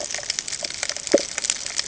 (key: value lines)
label: ambient
recorder: HydroMoth